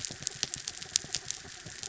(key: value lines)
label: anthrophony, mechanical
recorder: SoundTrap 300